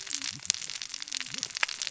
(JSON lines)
{"label": "biophony, cascading saw", "recorder": "SoundTrap 600 or HydroMoth"}